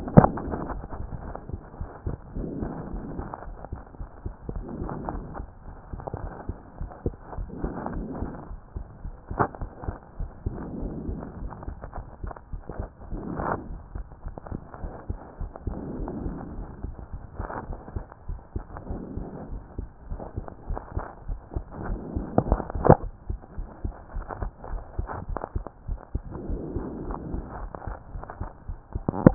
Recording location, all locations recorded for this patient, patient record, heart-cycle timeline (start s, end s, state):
pulmonary valve (PV)
pulmonary valve (PV)+tricuspid valve (TV)+mitral valve (MV)
#Age: Child
#Sex: Male
#Height: 151.0 cm
#Weight: 44.0 kg
#Pregnancy status: False
#Murmur: Absent
#Murmur locations: nan
#Most audible location: nan
#Systolic murmur timing: nan
#Systolic murmur shape: nan
#Systolic murmur grading: nan
#Systolic murmur pitch: nan
#Systolic murmur quality: nan
#Diastolic murmur timing: nan
#Diastolic murmur shape: nan
#Diastolic murmur grading: nan
#Diastolic murmur pitch: nan
#Diastolic murmur quality: nan
#Outcome: Normal
#Campaign: 2014 screening campaign
0.00	0.14	diastole
0.14	0.32	S1
0.32	0.44	systole
0.44	0.52	S2
0.52	0.68	diastole
0.68	0.82	S1
0.82	0.96	systole
0.96	1.10	S2
1.10	1.26	diastole
1.26	1.36	S1
1.36	1.50	systole
1.50	1.60	S2
1.60	1.80	diastole
1.80	1.88	S1
1.88	2.04	systole
2.04	2.18	S2
2.18	2.34	diastole
2.34	2.52	S1
2.52	2.64	systole
2.64	2.76	S2
2.76	2.92	diastole
2.92	3.04	S1
3.04	3.14	systole
3.14	3.26	S2
3.26	3.46	diastole
3.46	3.56	S1
3.56	3.68	systole
3.68	3.80	S2
3.80	4.00	diastole
4.00	4.08	S1
4.08	4.22	systole
4.22	4.34	S2
4.34	4.50	diastole
4.50	4.64	S1
4.64	4.78	systole
4.78	4.92	S2
4.92	5.08	diastole
5.08	5.24	S1
5.24	5.36	systole
5.36	5.48	S2
5.48	5.68	diastole
5.68	5.74	S1
5.74	5.92	systole
5.92	6.00	S2
6.00	6.20	diastole
6.20	6.32	S1
6.32	6.46	systole
6.46	6.56	S2
6.56	6.80	diastole
6.80	6.90	S1
6.90	7.02	systole
7.02	7.16	S2
7.16	7.36	diastole
7.36	7.50	S1
7.50	7.62	systole
7.62	7.76	S2
7.76	7.92	diastole
7.92	8.08	S1
8.08	8.20	systole
8.20	8.32	S2
8.32	8.50	diastole
8.50	8.58	S1
8.58	8.76	systole
8.76	8.88	S2
8.88	9.04	diastole
9.04	9.14	S1
9.14	9.30	systole
9.30	9.38	S2
9.38	9.60	diastole
9.60	9.70	S1
9.70	9.84	systole
9.84	9.98	S2
9.98	10.18	diastole
10.18	10.30	S1
10.30	10.44	systole
10.44	10.58	S2
10.58	10.74	diastole
10.74	10.92	S1
10.92	11.06	systole
11.06	11.20	S2
11.20	11.40	diastole
11.40	11.52	S1
11.52	11.66	systole
11.66	11.76	S2
11.76	11.96	diastole
11.96	12.04	S1
12.04	12.22	systole
12.22	12.32	S2
12.32	12.54	diastole
12.54	12.62	S1
12.62	12.78	systole
12.78	12.90	S2
12.90	13.10	diastole
13.10	13.22	S1
13.22	13.36	systole
13.36	13.50	S2
13.50	13.70	diastole
13.70	13.82	S1
13.82	13.94	systole
13.94	14.06	S2
14.06	14.26	diastole
14.26	14.34	S1
14.34	14.50	systole
14.50	14.62	S2
14.62	14.82	diastole
14.82	14.92	S1
14.92	15.08	systole
15.08	15.20	S2
15.20	15.40	diastole
15.40	15.52	S1
15.52	15.66	systole
15.66	15.80	S2
15.80	15.96	diastole
15.96	16.10	S1
16.10	16.24	systole
16.24	16.38	S2
16.38	16.56	diastole
16.56	16.68	S1
16.68	16.82	systole
16.82	16.94	S2
16.94	17.12	diastole
17.12	17.22	S1
17.22	17.38	systole
17.38	17.50	S2
17.50	17.68	diastole
17.68	17.78	S1
17.78	17.94	systole
17.94	18.06	S2
18.06	18.28	diastole
18.28	18.40	S1
18.40	18.52	systole
18.52	18.66	S2
18.66	18.88	diastole
18.88	19.02	S1
19.02	19.16	systole
19.16	19.28	S2
19.28	19.50	diastole
19.50	19.62	S1
19.62	19.78	systole
19.78	19.90	S2
19.90	20.10	diastole
20.10	20.20	S1
20.20	20.36	systole
20.36	20.48	S2
20.48	20.70	diastole
20.70	20.82	S1
20.82	20.98	systole
20.98	21.10	S2
21.10	21.28	diastole
21.28	21.40	S1
21.40	21.52	systole
21.52	21.64	S2
21.64	21.84	diastole
21.84	22.00	S1
22.00	22.14	systole
22.14	22.30	S2
22.30	22.46	diastole
22.46	22.62	S1
22.62	22.72	systole
22.72	22.86	S2
22.86	23.02	diastole
23.02	23.14	S1
23.14	23.28	systole
23.28	23.40	S2
23.40	23.58	diastole
23.58	23.70	S1
23.70	23.86	systole
23.86	23.98	S2
23.98	24.16	diastole
24.16	24.28	S1
24.28	24.38	systole
24.38	24.48	S2
24.48	24.70	diastole
24.70	24.82	S1
24.82	24.94	systole
24.94	25.06	S2
25.06	25.26	diastole
25.26	25.40	S1
25.40	25.56	systole
25.56	25.70	S2
25.70	25.88	diastole
25.88	26.00	S1
26.00	26.16	systole
26.16	26.26	S2
26.26	26.46	diastole
26.46	26.62	S1
26.62	26.84	systole
26.84	27.00	S2
27.00	27.22	diastole
27.22	27.40	S1
27.40	27.56	systole
27.56	27.68	S2
27.68	27.86	diastole
27.86	27.98	S1
27.98	28.14	systole
28.14	28.24	S2
28.24	28.40	diastole
28.40	28.52	S1
28.52	28.68	systole
28.68	28.80	S2
28.80	28.96	diastole
28.96	29.04	S1
29.04	29.22	systole
29.22	29.34	S2